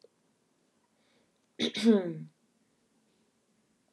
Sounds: Throat clearing